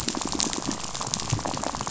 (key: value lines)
label: biophony, rattle
recorder: SoundTrap 500